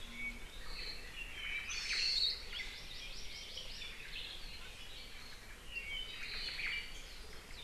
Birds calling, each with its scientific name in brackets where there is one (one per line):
Apapane (Himatione sanguinea)
Omao (Myadestes obscurus)
Hawaii Akepa (Loxops coccineus)
Hawaii Amakihi (Chlorodrepanis virens)
Iiwi (Drepanis coccinea)